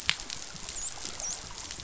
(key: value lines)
label: biophony, dolphin
recorder: SoundTrap 500